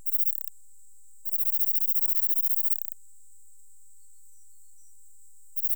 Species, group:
Platycleis affinis, Orthoptera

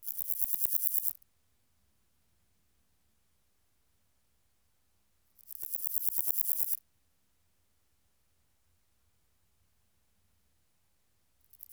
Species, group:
Pseudochorthippus parallelus, Orthoptera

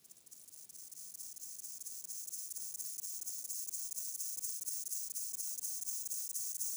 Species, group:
Gomphocerippus rufus, Orthoptera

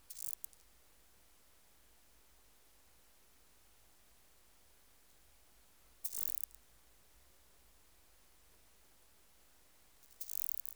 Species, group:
Omocestus petraeus, Orthoptera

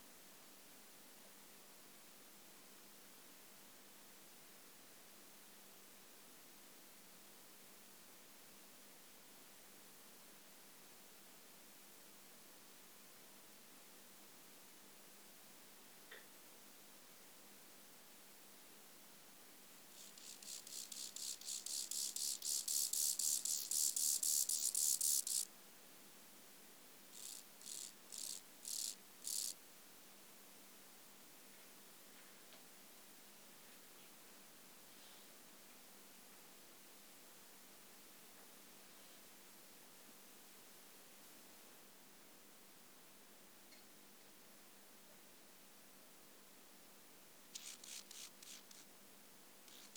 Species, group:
Chorthippus mollis, Orthoptera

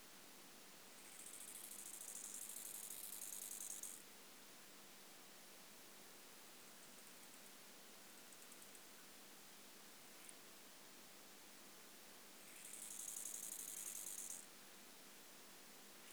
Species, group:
Chorthippus biguttulus, Orthoptera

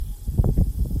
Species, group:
Neotibicen lyricen, Cicadidae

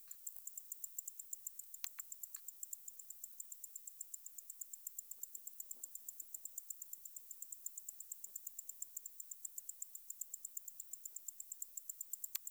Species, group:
Decticus albifrons, Orthoptera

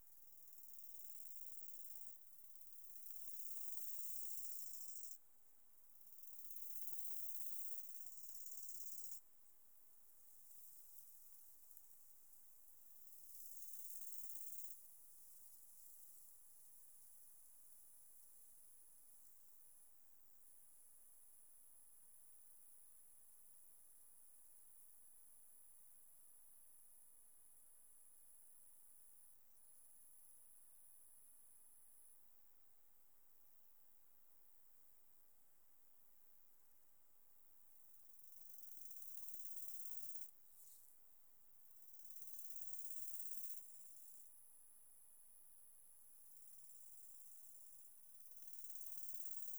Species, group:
Chorthippus biguttulus, Orthoptera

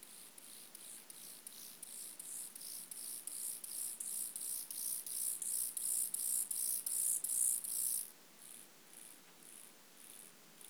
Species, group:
Chorthippus mollis, Orthoptera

